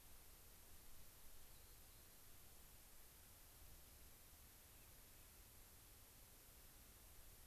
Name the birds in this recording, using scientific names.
Salpinctes obsoletus, unidentified bird